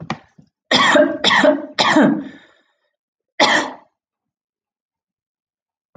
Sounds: Cough